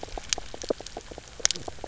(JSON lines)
{"label": "biophony, knock croak", "recorder": "SoundTrap 300"}